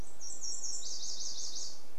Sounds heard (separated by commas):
Nashville Warbler song